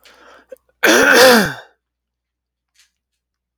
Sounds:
Throat clearing